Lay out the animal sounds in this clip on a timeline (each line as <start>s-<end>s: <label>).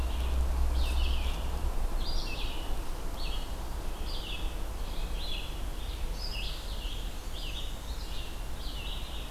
0.0s-9.3s: Red-eyed Vireo (Vireo olivaceus)
6.4s-8.4s: Black-and-white Warbler (Mniotilta varia)